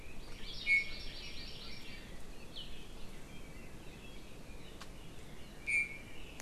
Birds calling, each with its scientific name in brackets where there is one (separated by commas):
Iiwi (Drepanis coccinea), Hawaii Amakihi (Chlorodrepanis virens), Red-billed Leiothrix (Leiothrix lutea)